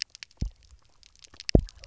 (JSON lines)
{"label": "biophony, double pulse", "recorder": "SoundTrap 300"}